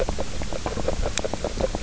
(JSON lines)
{"label": "biophony, grazing", "recorder": "SoundTrap 300"}